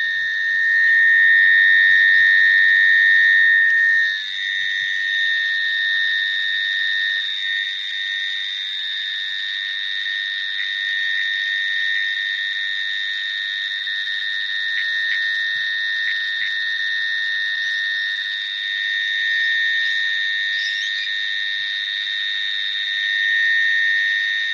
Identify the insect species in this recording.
Glaucopsaltria viridis